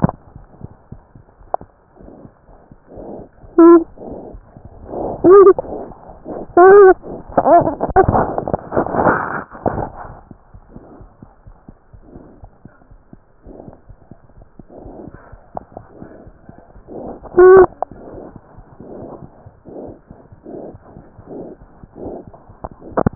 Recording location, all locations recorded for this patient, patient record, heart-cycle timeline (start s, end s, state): aortic valve (AV)
aortic valve (AV)+mitral valve (MV)
#Age: Infant
#Sex: Male
#Height: 66.0 cm
#Weight: 9.97 kg
#Pregnancy status: False
#Murmur: Absent
#Murmur locations: nan
#Most audible location: nan
#Systolic murmur timing: nan
#Systolic murmur shape: nan
#Systolic murmur grading: nan
#Systolic murmur pitch: nan
#Systolic murmur quality: nan
#Diastolic murmur timing: nan
#Diastolic murmur shape: nan
#Diastolic murmur grading: nan
#Diastolic murmur pitch: nan
#Diastolic murmur quality: nan
#Outcome: Abnormal
#Campaign: 2015 screening campaign
0.00	10.09	unannotated
10.09	10.17	S1
10.17	10.29	systole
10.29	10.37	S2
10.37	10.52	diastole
10.52	10.62	S1
10.62	10.75	systole
10.75	10.81	S2
10.81	10.99	diastole
10.99	11.08	S1
11.08	11.20	systole
11.20	11.28	S2
11.28	11.46	diastole
11.46	11.56	S1
11.56	11.66	systole
11.66	11.76	S2
11.76	11.91	diastole
11.91	12.01	S1
12.01	12.14	systole
12.14	12.21	S2
12.21	12.41	diastole
12.41	12.49	S1
12.49	12.64	systole
12.64	12.68	S2
12.68	12.88	diastole
12.88	12.98	S1
12.98	13.10	systole
13.10	13.17	S2
13.17	13.46	diastole
13.46	13.58	S1
13.58	13.66	systole
13.66	13.76	S2
13.76	13.88	diastole
13.88	13.95	S1
13.95	14.09	systole
14.09	14.18	S2
14.18	14.36	diastole
14.36	14.45	S1
14.45	14.56	systole
14.56	14.63	S2
14.63	14.82	diastole
14.82	14.96	S1
14.96	15.05	systole
15.05	15.18	S2
15.18	23.15	unannotated